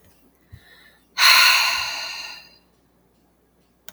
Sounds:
Sigh